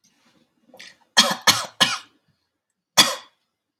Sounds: Cough